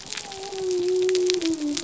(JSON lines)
{"label": "biophony", "recorder": "SoundTrap 300"}